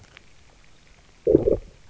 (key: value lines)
label: biophony, low growl
recorder: SoundTrap 300